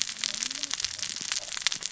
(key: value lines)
label: biophony, cascading saw
recorder: SoundTrap 600 or HydroMoth